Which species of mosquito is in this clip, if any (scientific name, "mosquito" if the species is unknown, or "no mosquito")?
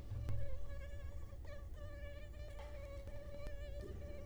Culex quinquefasciatus